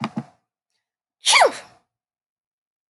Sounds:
Sneeze